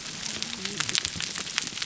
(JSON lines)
{"label": "biophony, whup", "recorder": "SoundTrap 300"}